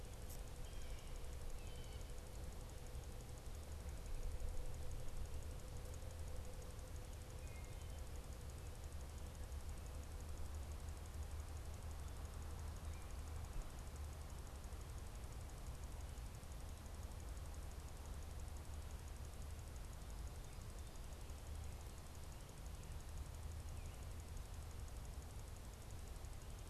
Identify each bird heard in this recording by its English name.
Blue Jay, Wood Thrush